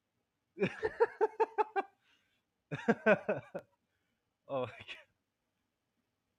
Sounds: Laughter